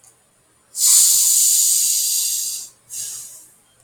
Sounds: Sniff